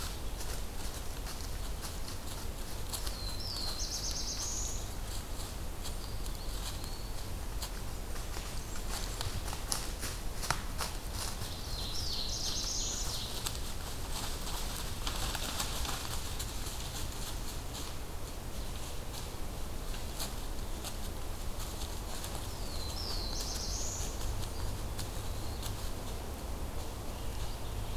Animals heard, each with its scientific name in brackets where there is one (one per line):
Eastern Wood-Pewee (Contopus virens)
Ovenbird (Seiurus aurocapilla)
Black-throated Blue Warbler (Setophaga caerulescens)
Blackburnian Warbler (Setophaga fusca)